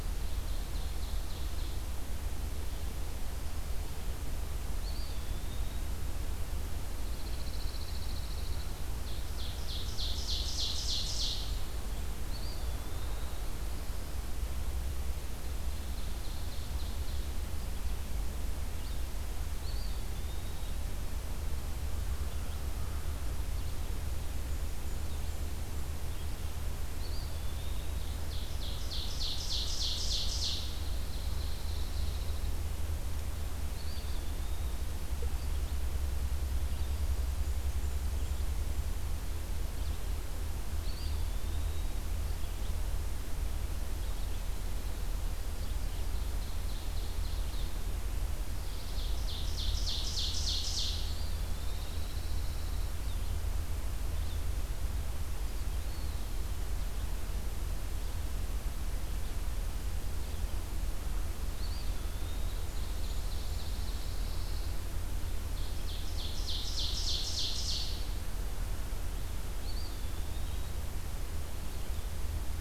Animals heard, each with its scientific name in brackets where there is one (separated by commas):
Pine Warbler (Setophaga pinus), Red-eyed Vireo (Vireo olivaceus), Eastern Wood-Pewee (Contopus virens), Ovenbird (Seiurus aurocapilla), Blackburnian Warbler (Setophaga fusca)